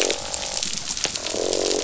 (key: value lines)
label: biophony, croak
recorder: SoundTrap 500